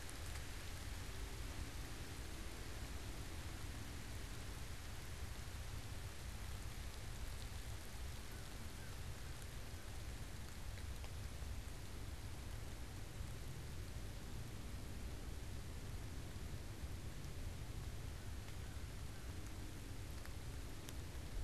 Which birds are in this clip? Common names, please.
American Crow